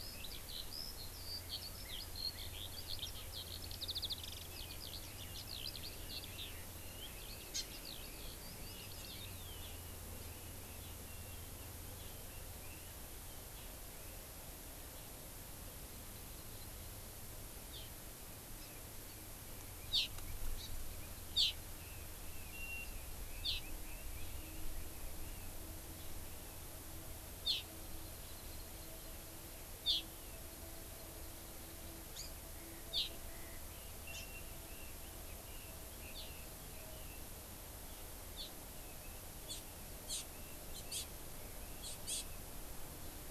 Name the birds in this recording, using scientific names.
Alauda arvensis, Chlorodrepanis virens, Leiothrix lutea